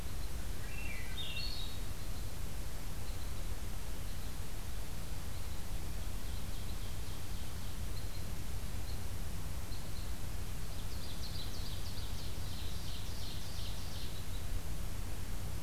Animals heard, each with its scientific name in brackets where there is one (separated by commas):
Swainson's Thrush (Catharus ustulatus), Red Crossbill (Loxia curvirostra), Ovenbird (Seiurus aurocapilla)